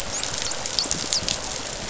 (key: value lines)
label: biophony, dolphin
recorder: SoundTrap 500